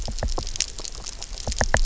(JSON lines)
{"label": "biophony, knock", "recorder": "SoundTrap 300"}